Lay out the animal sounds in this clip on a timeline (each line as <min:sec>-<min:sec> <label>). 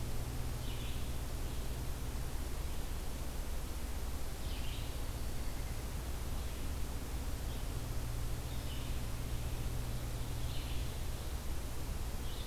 0:00.0-0:12.5 Red-eyed Vireo (Vireo olivaceus)
0:04.6-0:05.8 Black-throated Green Warbler (Setophaga virens)